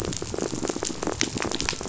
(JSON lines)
{"label": "biophony", "recorder": "SoundTrap 500"}